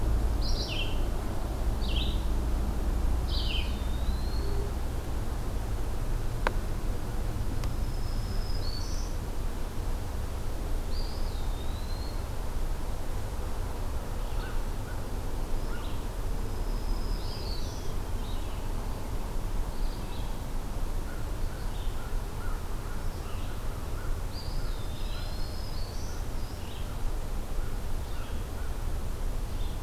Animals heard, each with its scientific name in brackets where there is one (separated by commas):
Red-eyed Vireo (Vireo olivaceus), American Crow (Corvus brachyrhynchos), Eastern Wood-Pewee (Contopus virens), Black-throated Green Warbler (Setophaga virens)